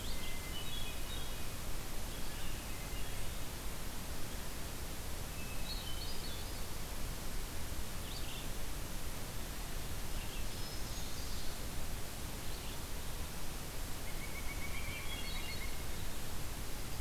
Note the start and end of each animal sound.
[0.04, 1.55] Hermit Thrush (Catharus guttatus)
[2.54, 3.56] Hermit Thrush (Catharus guttatus)
[5.34, 6.83] Hermit Thrush (Catharus guttatus)
[7.95, 12.98] Red-eyed Vireo (Vireo olivaceus)
[10.33, 11.51] Hermit Thrush (Catharus guttatus)
[13.98, 15.76] Pileated Woodpecker (Dryocopus pileatus)
[14.75, 15.86] Hermit Thrush (Catharus guttatus)

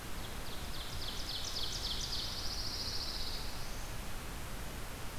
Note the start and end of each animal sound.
[0.00, 2.39] Ovenbird (Seiurus aurocapilla)
[2.20, 3.42] Pine Warbler (Setophaga pinus)
[2.91, 3.87] Black-throated Blue Warbler (Setophaga caerulescens)

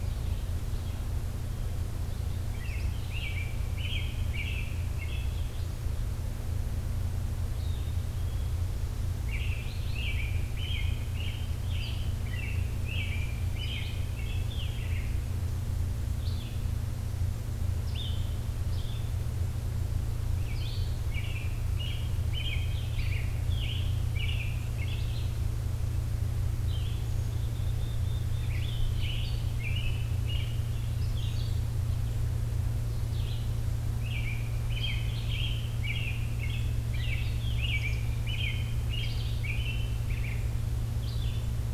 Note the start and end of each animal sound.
[2.50, 5.44] American Robin (Turdus migratorius)
[7.51, 8.55] Black-capped Chickadee (Poecile atricapillus)
[9.16, 15.02] American Robin (Turdus migratorius)
[16.11, 29.49] Red-eyed Vireo (Vireo olivaceus)
[21.00, 25.36] American Robin (Turdus migratorius)
[26.96, 28.56] Black-capped Chickadee (Poecile atricapillus)
[28.30, 30.68] American Robin (Turdus migratorius)
[31.00, 41.38] Red-eyed Vireo (Vireo olivaceus)
[34.04, 40.68] American Robin (Turdus migratorius)

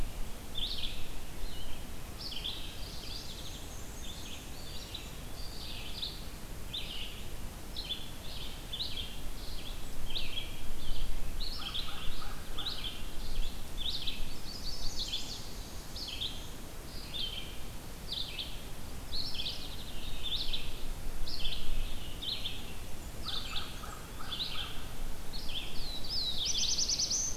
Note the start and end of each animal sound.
[0.00, 21.72] Red-eyed Vireo (Vireo olivaceus)
[2.59, 3.67] Mourning Warbler (Geothlypis philadelphia)
[3.00, 5.10] Black-and-white Warbler (Mniotilta varia)
[4.42, 5.71] Eastern Wood-Pewee (Contopus virens)
[11.38, 13.27] American Crow (Corvus brachyrhynchos)
[13.84, 15.71] Chestnut-sided Warbler (Setophaga pensylvanica)
[18.93, 20.00] Mourning Warbler (Geothlypis philadelphia)
[22.08, 27.37] Red-eyed Vireo (Vireo olivaceus)
[22.72, 24.19] Blackburnian Warbler (Setophaga fusca)
[22.97, 25.39] American Crow (Corvus brachyrhynchos)
[25.49, 27.37] Black-throated Blue Warbler (Setophaga caerulescens)

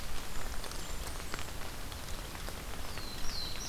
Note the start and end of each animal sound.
[0.24, 1.53] Blackburnian Warbler (Setophaga fusca)
[2.70, 3.69] Black-throated Blue Warbler (Setophaga caerulescens)

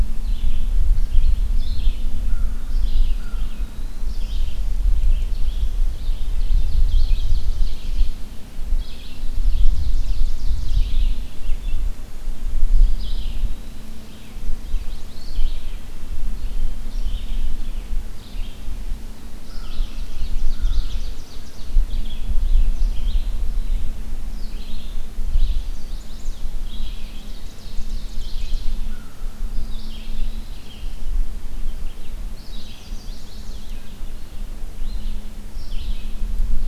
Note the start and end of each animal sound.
[0.00, 36.67] Red-eyed Vireo (Vireo olivaceus)
[2.11, 3.74] American Crow (Corvus brachyrhynchos)
[2.95, 4.16] Eastern Wood-Pewee (Contopus virens)
[6.26, 8.30] Ovenbird (Seiurus aurocapilla)
[8.63, 10.96] Ovenbird (Seiurus aurocapilla)
[12.88, 14.28] Eastern Wood-Pewee (Contopus virens)
[14.30, 15.57] Chestnut-sided Warbler (Setophaga pensylvanica)
[19.38, 21.04] American Crow (Corvus brachyrhynchos)
[19.47, 21.78] Ovenbird (Seiurus aurocapilla)
[25.30, 26.41] Chestnut-sided Warbler (Setophaga pensylvanica)
[26.91, 28.73] Ovenbird (Seiurus aurocapilla)
[28.68, 29.50] American Crow (Corvus brachyrhynchos)
[29.54, 30.68] Eastern Wood-Pewee (Contopus virens)
[32.15, 33.67] Chestnut-sided Warbler (Setophaga pensylvanica)

